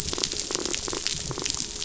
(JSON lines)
{"label": "biophony", "recorder": "SoundTrap 500"}